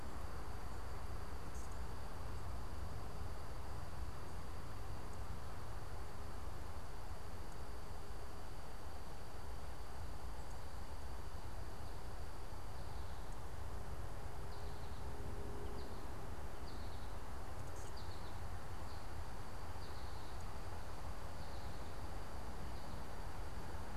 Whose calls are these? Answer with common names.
American Goldfinch